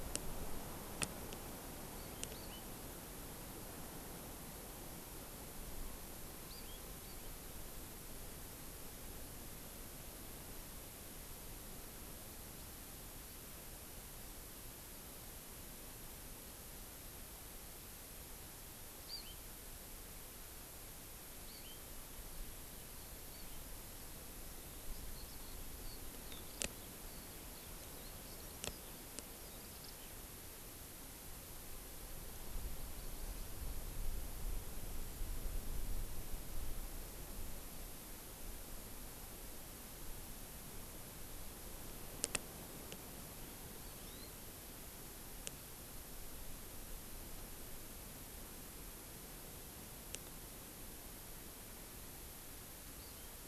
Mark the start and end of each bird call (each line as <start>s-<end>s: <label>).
1.9s-2.6s: Hawaii Amakihi (Chlorodrepanis virens)
6.4s-7.3s: Hawaii Amakihi (Chlorodrepanis virens)
19.0s-19.4s: Hawaii Amakihi (Chlorodrepanis virens)
21.4s-21.8s: Hawaii Amakihi (Chlorodrepanis virens)
23.2s-23.6s: Hawaii Amakihi (Chlorodrepanis virens)
24.5s-30.0s: Eurasian Skylark (Alauda arvensis)
43.8s-44.3s: Hawaii Amakihi (Chlorodrepanis virens)
52.9s-53.4s: Hawaii Amakihi (Chlorodrepanis virens)